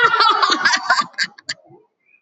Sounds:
Laughter